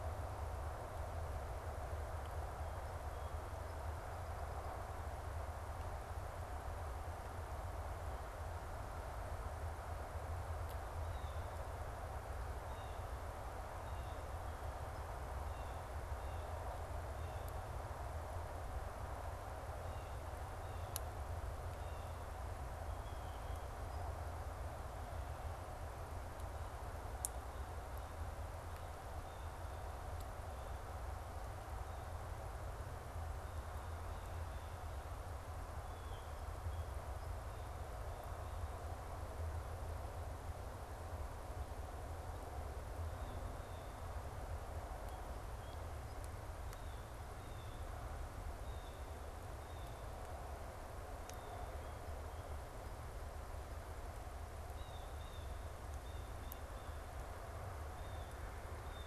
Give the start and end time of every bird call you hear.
2.7s-4.8s: Song Sparrow (Melospiza melodia)
10.8s-23.8s: Blue Jay (Cyanocitta cristata)
29.1s-29.5s: Blue Jay (Cyanocitta cristata)
34.1s-37.1s: Blue Jay (Cyanocitta cristata)
43.0s-44.2s: Blue Jay (Cyanocitta cristata)
44.8s-46.3s: Song Sparrow (Melospiza melodia)
46.6s-59.1s: Blue Jay (Cyanocitta cristata)

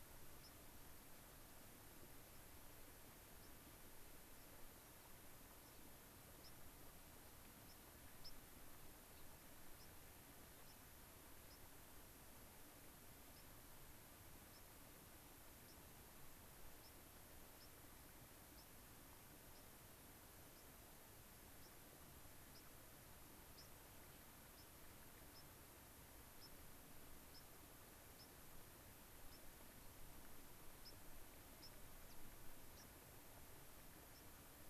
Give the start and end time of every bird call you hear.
0.4s-0.5s: White-crowned Sparrow (Zonotrichia leucophrys)
2.3s-2.4s: White-crowned Sparrow (Zonotrichia leucophrys)
3.3s-3.5s: White-crowned Sparrow (Zonotrichia leucophrys)
5.6s-5.9s: White-crowned Sparrow (Zonotrichia leucophrys)
6.3s-6.5s: White-crowned Sparrow (Zonotrichia leucophrys)
7.6s-7.8s: White-crowned Sparrow (Zonotrichia leucophrys)
8.2s-8.4s: White-crowned Sparrow (Zonotrichia leucophrys)
9.1s-9.3s: Gray-crowned Rosy-Finch (Leucosticte tephrocotis)
9.7s-9.9s: White-crowned Sparrow (Zonotrichia leucophrys)
10.6s-10.9s: White-crowned Sparrow (Zonotrichia leucophrys)
11.4s-11.6s: White-crowned Sparrow (Zonotrichia leucophrys)
13.3s-13.5s: White-crowned Sparrow (Zonotrichia leucophrys)
14.5s-14.6s: White-crowned Sparrow (Zonotrichia leucophrys)
15.6s-15.8s: White-crowned Sparrow (Zonotrichia leucophrys)
16.8s-17.0s: White-crowned Sparrow (Zonotrichia leucophrys)
17.5s-17.8s: White-crowned Sparrow (Zonotrichia leucophrys)
18.5s-18.7s: White-crowned Sparrow (Zonotrichia leucophrys)
19.5s-19.7s: White-crowned Sparrow (Zonotrichia leucophrys)
20.5s-20.7s: White-crowned Sparrow (Zonotrichia leucophrys)
21.6s-21.7s: White-crowned Sparrow (Zonotrichia leucophrys)
22.5s-22.7s: White-crowned Sparrow (Zonotrichia leucophrys)
23.4s-23.7s: White-crowned Sparrow (Zonotrichia leucophrys)
24.4s-24.7s: White-crowned Sparrow (Zonotrichia leucophrys)
25.3s-25.5s: White-crowned Sparrow (Zonotrichia leucophrys)
26.3s-26.6s: White-crowned Sparrow (Zonotrichia leucophrys)
27.2s-27.5s: White-crowned Sparrow (Zonotrichia leucophrys)
28.1s-28.4s: White-crowned Sparrow (Zonotrichia leucophrys)
29.3s-29.4s: White-crowned Sparrow (Zonotrichia leucophrys)
30.8s-31.0s: White-crowned Sparrow (Zonotrichia leucophrys)
31.5s-31.7s: White-crowned Sparrow (Zonotrichia leucophrys)
32.7s-32.9s: White-crowned Sparrow (Zonotrichia leucophrys)
34.1s-34.3s: White-crowned Sparrow (Zonotrichia leucophrys)

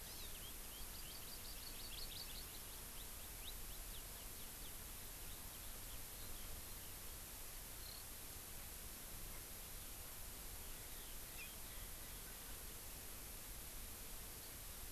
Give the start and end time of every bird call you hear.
0.0s-8.0s: Eurasian Skylark (Alauda arvensis)
0.0s-0.3s: Hawaii Amakihi (Chlorodrepanis virens)
0.8s-2.6s: Hawaii Amakihi (Chlorodrepanis virens)
10.8s-12.2s: Eurasian Skylark (Alauda arvensis)

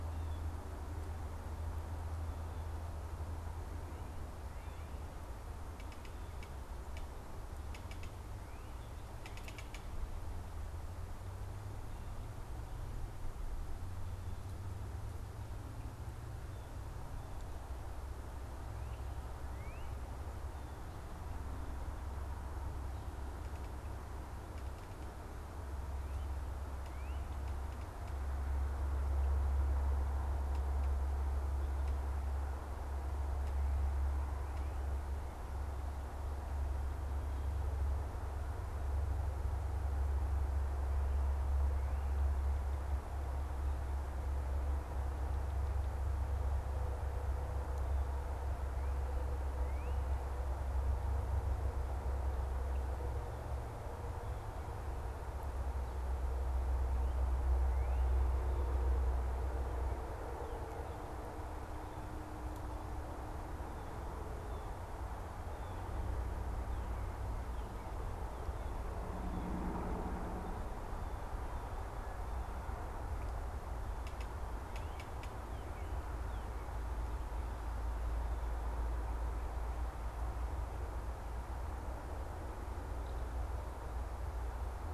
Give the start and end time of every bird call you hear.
19.4s-19.8s: Northern Cardinal (Cardinalis cardinalis)
26.1s-27.7s: Northern Cardinal (Cardinalis cardinalis)
48.7s-50.0s: Northern Cardinal (Cardinalis cardinalis)

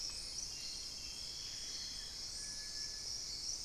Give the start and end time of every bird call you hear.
1.2s-2.3s: Amazonian Barred-Woodcreeper (Dendrocolaptes certhia)
2.3s-3.2s: Cinereous Tinamou (Crypturellus cinereus)

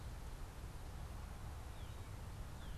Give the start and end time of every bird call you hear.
1.3s-2.8s: Northern Cardinal (Cardinalis cardinalis)

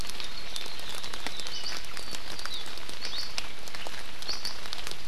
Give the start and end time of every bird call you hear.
0.0s-1.5s: Hawaii Akepa (Loxops coccineus)

